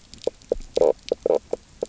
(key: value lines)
label: biophony, knock croak
recorder: SoundTrap 300